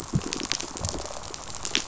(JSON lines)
{"label": "biophony, pulse", "recorder": "SoundTrap 500"}